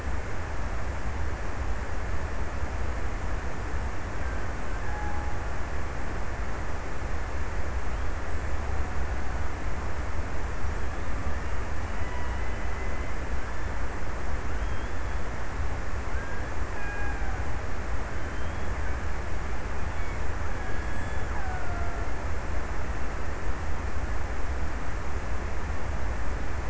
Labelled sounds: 4.5	6.7	killer whale, Bigg's (transient), 0.55 to 2.1 kHz
16.1	18.0	killer whale, Bigg's (transient), 0.48 to 2.7 kHz
20.3	22.4	killer whale, Bigg's (transient), 0.48 to 2.3 kHz

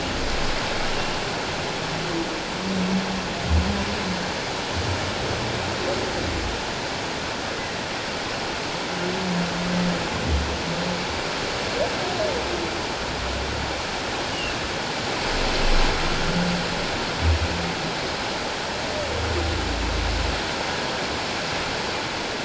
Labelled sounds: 14.3	14.6	humpback whale, 2.6 to 3.0 kHz

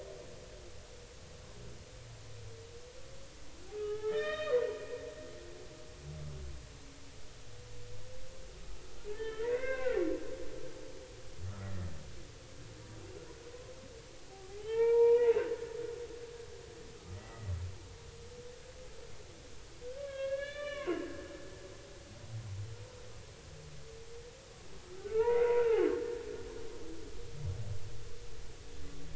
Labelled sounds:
3.7	4.6	humpback whale, 0.80 to 3.8 kHz
9.1	10.0	humpback whale, 0.96 to 3.2 kHz
14.3	15.3	humpback whale, 0.80 to 2.9 kHz
17.1	17.5	humpback whale, 1.9 to 2.0 kHz
19.8	21.0	humpback whale, 0.96 to 4.2 kHz
25.0	25.9	humpback whale, 0.80 to 2.9 kHz

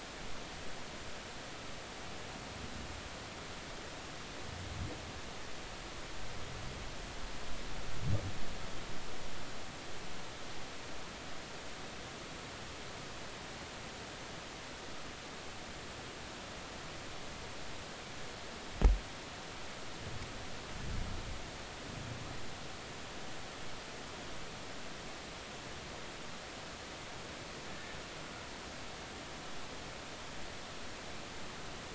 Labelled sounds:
27.7	28.0	vessel noise, 1.7 to 1.9 kHz

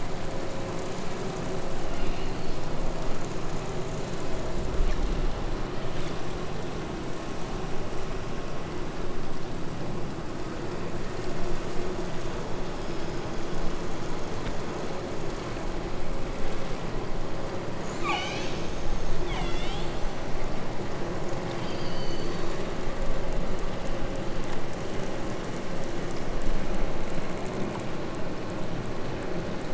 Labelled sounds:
1.8	2.7	killer whale, southern Alaska resident, 1.8 to 5.1 kHz
17.8	20.0	killer whale, southern Alaska resident, 0.44 to 8.0 kHz
21.4	22.8	killer whale, southern Alaska resident, 0.91 to 7.9 kHz

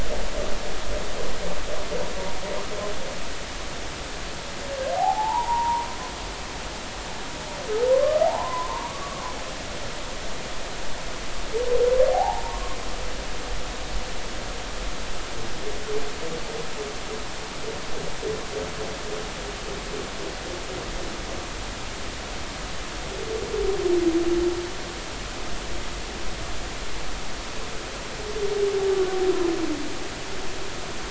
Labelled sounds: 5.0	5.9	humpback whale, 0.80 to 1.1 kHz
7.9	9.2	humpback whale, 0.80 to 1.2 kHz
12.1	12.8	humpback whale, 0.80 to 1.1 kHz

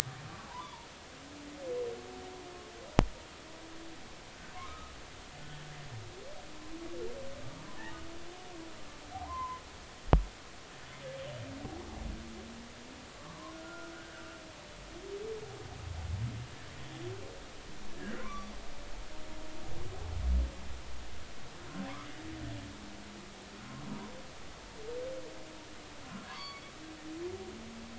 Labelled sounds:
0.5	0.9	humpback whale, 0.80 to 1.2 kHz
4.5	4.9	humpback whale, 0.99 to 1.4 kHz
9.1	9.6	humpback whale, 0.80 to 1.2 kHz
13.2	14.4	humpback whale, 0.96 to 1.6 kHz
18.0	18.5	humpback whale, 0.96 to 1.8 kHz
26.3	26.6	humpback whale, 0.93 to 4.7 kHz

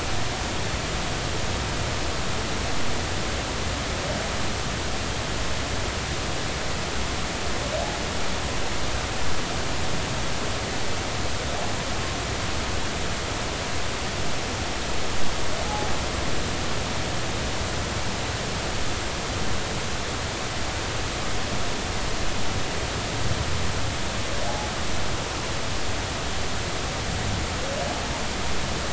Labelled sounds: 15.7	15.9	humpback whale, 0.80 to 0.90 kHz

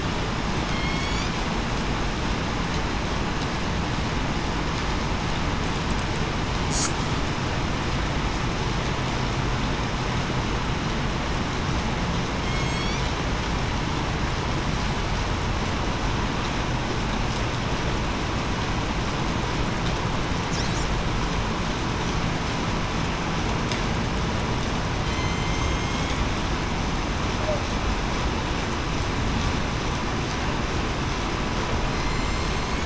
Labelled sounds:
0.7	1.2	killer whale, southern resident, 2.1 to 2.3 kHz
12.4	13.0	killer whale, southern resident, 2.1 to 4.8 kHz
25.0	25.6	killer whale, southern resident, 3.1 to 6.3 kHz
31.9	32.8	killer whale, southern resident, 2.1 to 8.0 kHz

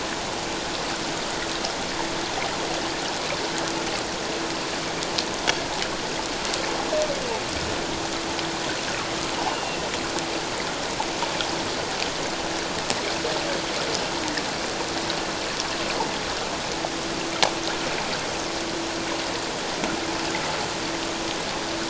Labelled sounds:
9.5	9.8	humpback whale, 2.7 to 2.9 kHz

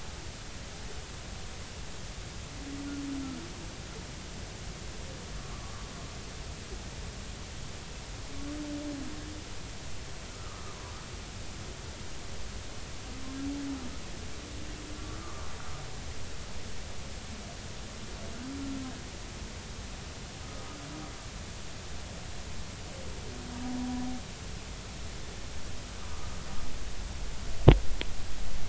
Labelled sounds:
10.3	10.8	humpback whale, 1.1 to 1.4 kHz
15.2	15.5	humpback whale, 0.99 to 1.2 kHz
26.0	26.3	humpback whale, 1.1 to 1.3 kHz

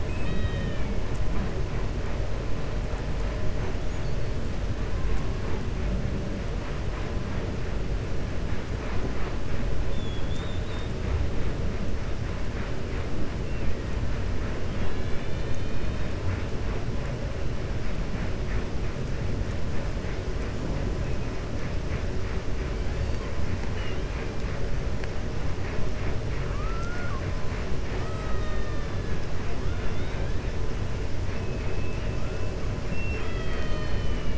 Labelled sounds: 0.0	0.9	killer whale, 1.2 to 4.4 kHz
9.8	10.9	killer whale, 3.1 to 4.5 kHz
23.6	24.3	killer whale, 1.6 to 3.8 kHz
26.4	27.3	killer whale, 0.72 to 2.2 kHz
31.5	32.1	killer whale, 2.1 to 2.9 kHz
32.8	34.3	killer whale, 0.64 to 4.5 kHz

